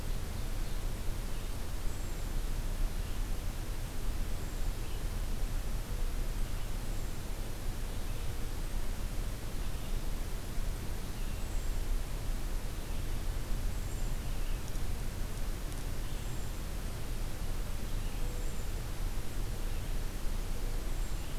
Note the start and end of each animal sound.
[0.00, 0.90] Ovenbird (Seiurus aurocapilla)
[0.00, 21.34] Red-eyed Vireo (Vireo olivaceus)
[1.78, 2.41] Hermit Thrush (Catharus guttatus)
[4.25, 4.69] Hermit Thrush (Catharus guttatus)
[6.71, 7.27] Hermit Thrush (Catharus guttatus)
[11.29, 11.85] Hermit Thrush (Catharus guttatus)
[13.62, 14.27] Hermit Thrush (Catharus guttatus)
[16.13, 16.58] Hermit Thrush (Catharus guttatus)
[18.09, 18.69] Hermit Thrush (Catharus guttatus)
[20.74, 21.39] Hermit Thrush (Catharus guttatus)

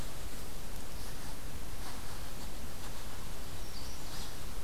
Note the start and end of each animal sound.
[3.11, 4.29] Magnolia Warbler (Setophaga magnolia)

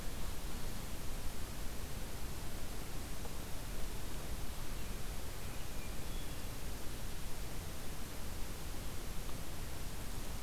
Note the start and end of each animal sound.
[5.65, 6.68] Hermit Thrush (Catharus guttatus)

